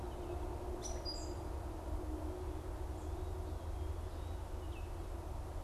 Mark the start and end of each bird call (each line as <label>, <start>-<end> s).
Gray Catbird (Dumetella carolinensis), 0.7-1.6 s